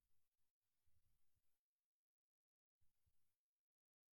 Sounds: Throat clearing